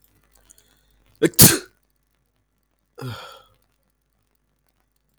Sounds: Sneeze